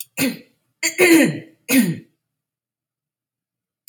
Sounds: Throat clearing